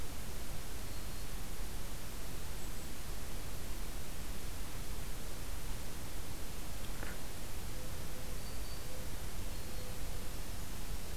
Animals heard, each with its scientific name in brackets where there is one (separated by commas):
Brown Creeper (Certhia americana), Black-throated Green Warbler (Setophaga virens)